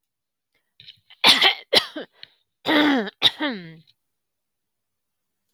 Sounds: Throat clearing